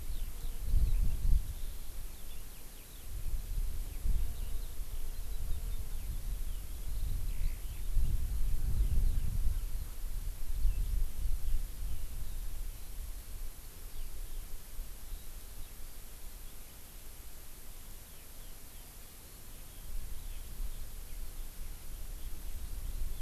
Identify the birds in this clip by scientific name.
Alauda arvensis